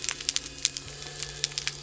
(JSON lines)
{"label": "anthrophony, boat engine", "recorder": "SoundTrap 300"}